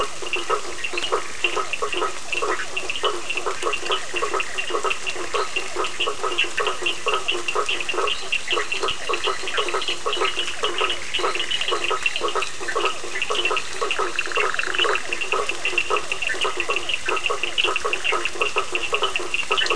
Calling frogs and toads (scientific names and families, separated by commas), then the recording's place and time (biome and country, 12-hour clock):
Boana faber (Hylidae), Sphaenorhynchus surdus (Hylidae), Physalaemus cuvieri (Leptodactylidae), Boana bischoffi (Hylidae), Boana leptolineata (Hylidae)
Atlantic Forest, Brazil, 9:30pm